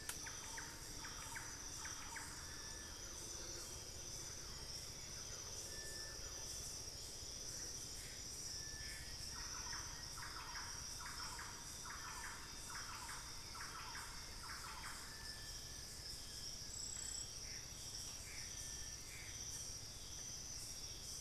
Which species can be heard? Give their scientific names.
Campylorhynchus turdinus, Cercomacra cinerascens, Thamnophilus schistaceus, Turdus hauxwelli, Xiphorhynchus guttatus